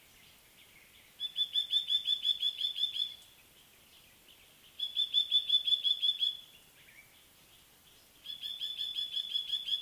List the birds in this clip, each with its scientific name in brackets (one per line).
Black-collared Apalis (Oreolais pulcher)